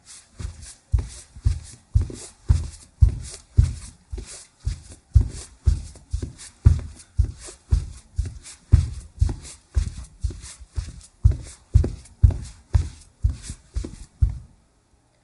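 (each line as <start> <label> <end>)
0.0 Soft footsteps walking slowly across a wooden floor in socks. 15.2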